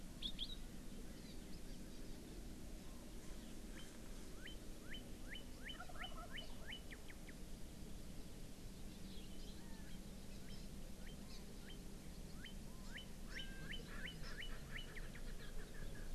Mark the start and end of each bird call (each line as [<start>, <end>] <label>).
[3.76, 6.86] Northern Cardinal (Cardinalis cardinalis)
[5.76, 6.56] Wild Turkey (Meleagris gallopavo)
[10.96, 14.86] Northern Cardinal (Cardinalis cardinalis)
[11.26, 11.36] Hawaii Amakihi (Chlorodrepanis virens)
[12.86, 12.96] Hawaii Amakihi (Chlorodrepanis virens)
[13.26, 13.46] Hawaii Amakihi (Chlorodrepanis virens)
[13.86, 16.06] Erckel's Francolin (Pternistis erckelii)
[14.26, 14.36] Hawaii Amakihi (Chlorodrepanis virens)